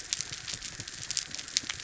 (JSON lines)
{"label": "anthrophony, boat engine", "recorder": "SoundTrap 300"}